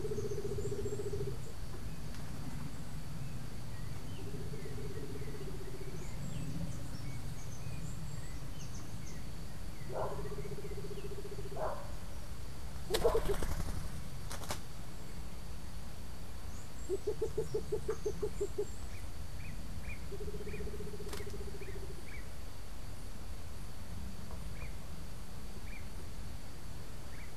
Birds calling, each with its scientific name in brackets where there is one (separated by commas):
Andean Motmot (Momotus aequatorialis), unidentified bird